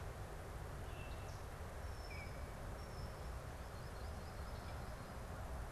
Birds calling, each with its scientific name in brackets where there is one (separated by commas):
Baltimore Oriole (Icterus galbula), Solitary Sandpiper (Tringa solitaria)